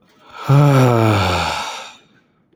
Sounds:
Sigh